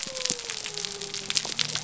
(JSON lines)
{"label": "biophony", "recorder": "SoundTrap 300"}